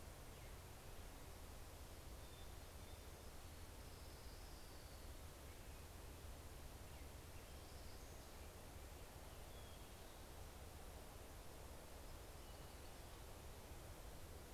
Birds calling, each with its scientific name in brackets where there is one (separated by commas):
Orange-crowned Warbler (Leiothlypis celata), Hermit Thrush (Catharus guttatus)